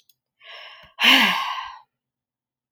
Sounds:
Sigh